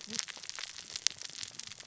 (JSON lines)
{"label": "biophony, cascading saw", "recorder": "SoundTrap 600 or HydroMoth"}